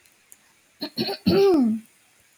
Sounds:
Throat clearing